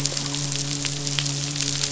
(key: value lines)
label: biophony, midshipman
recorder: SoundTrap 500